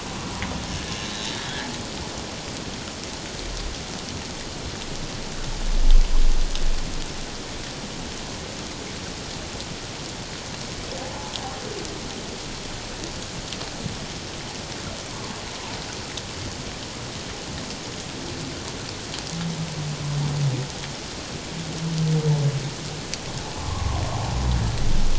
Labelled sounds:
1.0	1.3	humpback whale, 3.7 to 4.1 kHz
23.6	24.0	humpback whale, 0.97 to 1.2 kHz

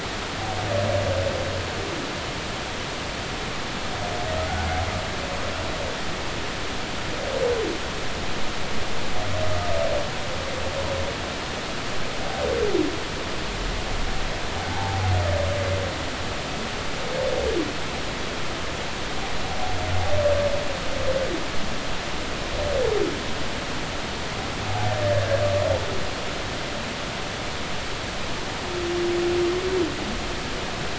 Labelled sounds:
14.7	15.0	humpback whale, 0.80 to 0.96 kHz

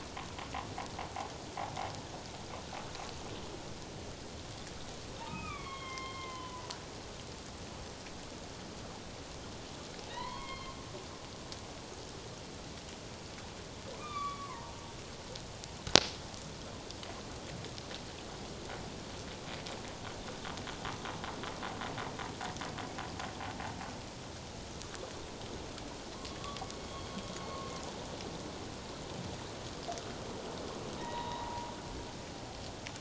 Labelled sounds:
5.2	6.7	humpback whale, 0.84 to 3.6 kHz
10.1	10.8	humpback whale, 0.88 to 4.3 kHz
14.0	14.8	humpback whale, 0.88 to 3.7 kHz
26.8	27.1	humpback whale, 3.2 to 3.3 kHz
31.0	31.7	humpback whale, 0.81 to 3.8 kHz

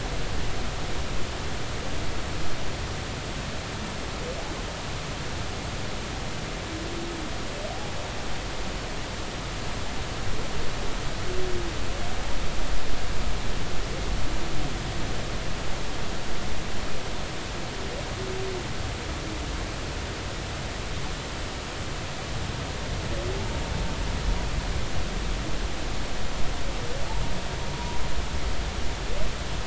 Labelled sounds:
27.7	28.0	humpback whale, 0.93 to 0.99 kHz

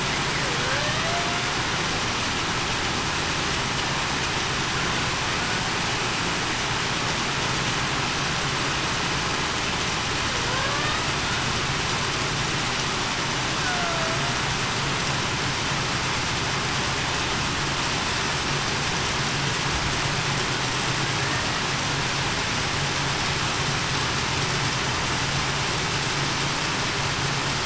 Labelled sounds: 0.4	1.0	killer whale, Bigg's (transient), 0.47 to 0.66 kHz
13.6	14.2	killer whale, Bigg's (transient), 0.63 to 0.75 kHz

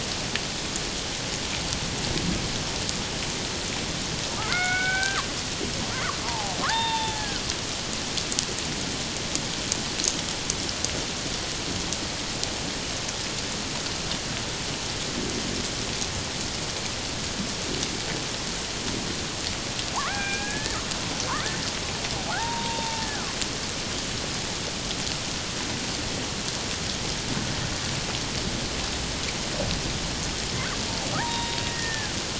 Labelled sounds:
4.4	5.2	killer whale, Bigg's (transient), call T01, 1.1 to 2.4 kHz
6.2	7.4	killer whale, Bigg's (transient), call T02, 0.78 to 3.8 kHz
19.9	20.8	killer whale, Bigg's (transient), 0.78 to 2.5 kHz
22.3	23.4	killer whale, Bigg's (transient), 0.78 to 1.9 kHz
31.2	32.1	killer whale, Bigg's (transient), 0.78 to 3.8 kHz

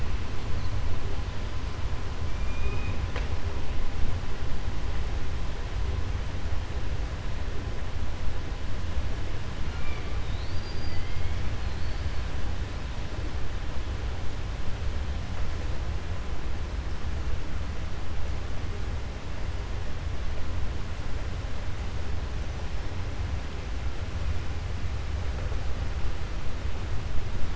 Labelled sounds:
10.2	12.2	killer whale, 2.0 to 5.1 kHz

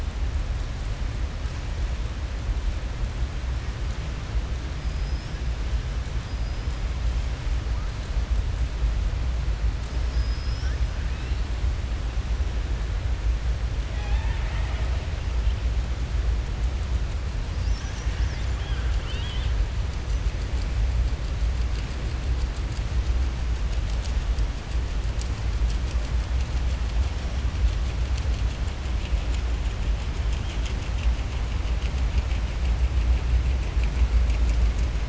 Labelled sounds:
4.8	5.4	killer whale, southern resident, 4.6 to 5.7 kHz
6.2	6.7	killer whale, southern resident, 4.8 to 5.3 kHz
10.0	10.8	killer whale, southern resident, 4.3 to 5.9 kHz
18.5	19.6	killer whale, southern resident, 0.99 to 4.6 kHz

